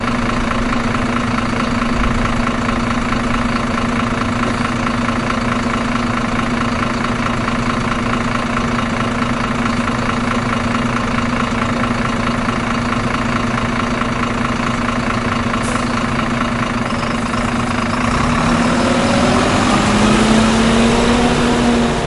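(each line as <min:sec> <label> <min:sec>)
0:00.0 A bus engine is idling. 0:17.9
0:15.6 A bus releases its brakes. 0:16.0
0:17.9 A bus is driving away. 0:22.1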